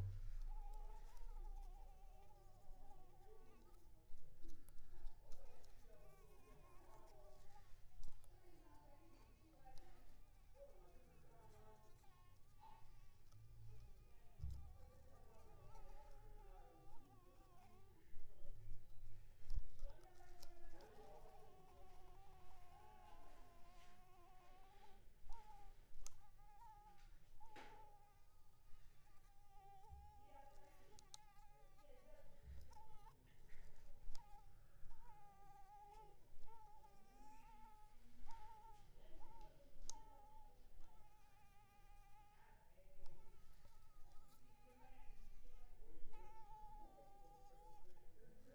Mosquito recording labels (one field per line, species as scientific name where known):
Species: Anopheles arabiensis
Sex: female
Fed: unfed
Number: one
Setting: cup